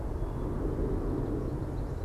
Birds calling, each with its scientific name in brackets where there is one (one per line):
American Goldfinch (Spinus tristis)